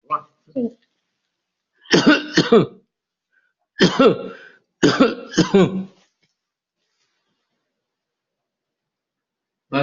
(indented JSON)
{
  "expert_labels": [
    {
      "quality": "good",
      "cough_type": "dry",
      "dyspnea": false,
      "wheezing": false,
      "stridor": false,
      "choking": false,
      "congestion": false,
      "nothing": true,
      "diagnosis": "COVID-19",
      "severity": "mild"
    }
  ],
  "age": 72,
  "gender": "male",
  "respiratory_condition": false,
  "fever_muscle_pain": false,
  "status": "COVID-19"
}